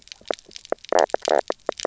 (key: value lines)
label: biophony, knock croak
recorder: SoundTrap 300